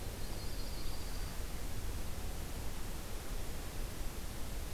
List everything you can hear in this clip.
Yellow-rumped Warbler, Dark-eyed Junco